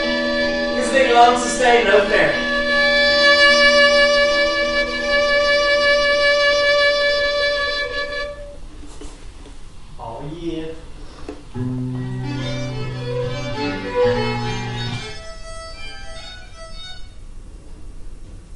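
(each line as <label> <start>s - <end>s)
A violin playing in a small hall. 0.0s - 8.5s
A man is shouting indistinctly in the background. 0.9s - 2.4s
An incomprehensible man speaking. 9.9s - 11.1s
Guitar and violin are playing in a small hall. 11.5s - 15.3s
A violin plays very softly. 15.4s - 17.2s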